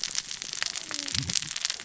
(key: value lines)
label: biophony, cascading saw
recorder: SoundTrap 600 or HydroMoth